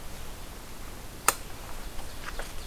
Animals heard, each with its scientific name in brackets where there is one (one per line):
Ovenbird (Seiurus aurocapilla)